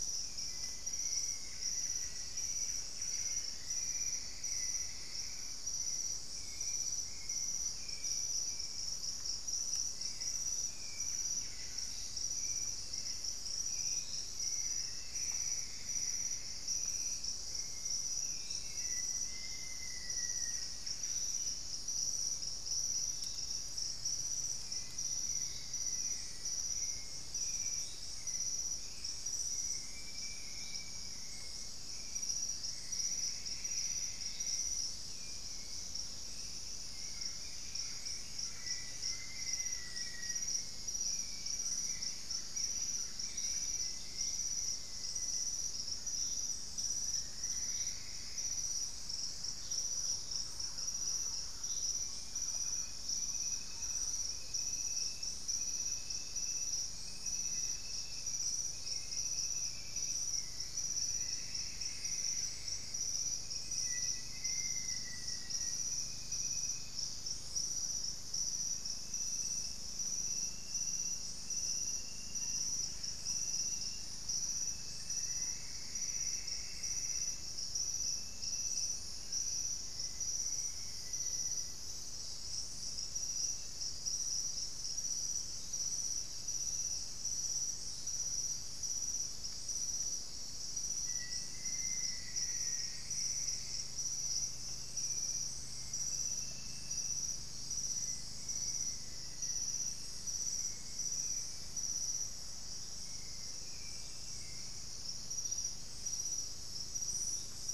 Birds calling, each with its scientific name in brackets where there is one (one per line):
Ringed Woodpecker (Celeus torquatus)
Plumbeous Antbird (Myrmelastes hyperythrus)
Black-faced Antthrush (Formicarius analis)
Thrush-like Wren (Campylorhynchus turdinus)
Hauxwell's Thrush (Turdus hauxwelli)
Buff-breasted Wren (Cantorchilus leucotis)